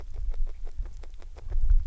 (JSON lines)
{"label": "biophony, grazing", "recorder": "SoundTrap 300"}